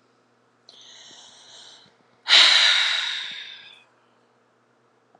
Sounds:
Sigh